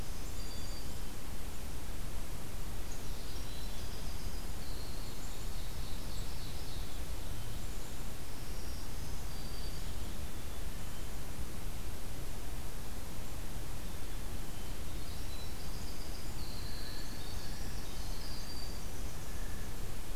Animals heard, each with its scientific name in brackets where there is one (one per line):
Black-capped Chickadee (Poecile atricapillus)
Black-throated Green Warbler (Setophaga virens)
Blue Jay (Cyanocitta cristata)
Winter Wren (Troglodytes hiemalis)
Ovenbird (Seiurus aurocapilla)